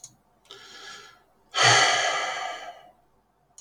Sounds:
Sigh